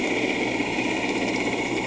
{"label": "anthrophony, boat engine", "recorder": "HydroMoth"}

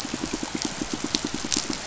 {"label": "biophony, pulse", "recorder": "SoundTrap 500"}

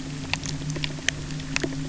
{"label": "anthrophony, boat engine", "recorder": "SoundTrap 300"}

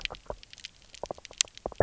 {"label": "biophony, knock croak", "recorder": "SoundTrap 300"}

